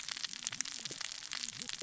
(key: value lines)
label: biophony, cascading saw
recorder: SoundTrap 600 or HydroMoth